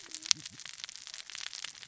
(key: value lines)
label: biophony, cascading saw
recorder: SoundTrap 600 or HydroMoth